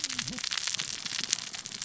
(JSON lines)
{"label": "biophony, cascading saw", "recorder": "SoundTrap 600 or HydroMoth"}